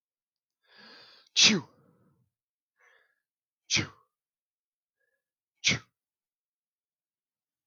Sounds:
Sneeze